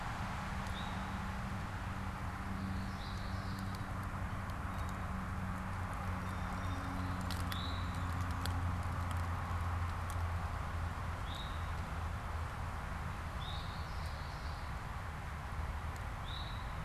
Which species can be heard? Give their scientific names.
Pipilo erythrophthalmus, Geothlypis trichas, Melospiza melodia